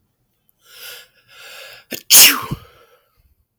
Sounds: Sneeze